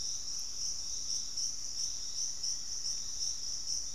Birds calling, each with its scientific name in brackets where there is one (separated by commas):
Black-faced Antthrush (Formicarius analis), Thrush-like Wren (Campylorhynchus turdinus)